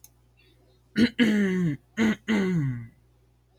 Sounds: Throat clearing